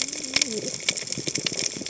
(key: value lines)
label: biophony, cascading saw
recorder: HydroMoth